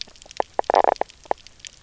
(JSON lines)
{"label": "biophony, knock croak", "recorder": "SoundTrap 300"}